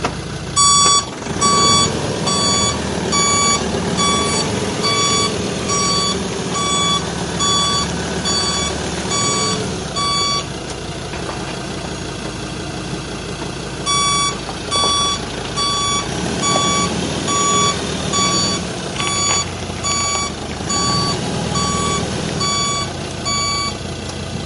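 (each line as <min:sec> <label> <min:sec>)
0:00.0 A vehicle engine running steadily. 0:24.5
0:00.3 A truck is emitting a beeping sound. 0:10.7
0:13.7 A truck is emitting a beeping sound. 0:24.3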